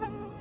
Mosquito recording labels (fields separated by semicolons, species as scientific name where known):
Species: Anopheles quadriannulatus; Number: one; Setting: insect culture